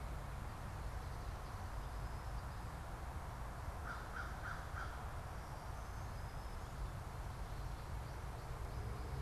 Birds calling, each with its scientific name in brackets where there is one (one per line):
Black-throated Green Warbler (Setophaga virens)
American Crow (Corvus brachyrhynchos)